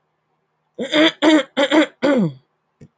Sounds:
Throat clearing